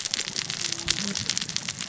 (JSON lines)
{"label": "biophony, cascading saw", "recorder": "SoundTrap 600 or HydroMoth"}